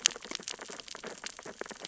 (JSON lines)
{"label": "biophony, sea urchins (Echinidae)", "recorder": "SoundTrap 600 or HydroMoth"}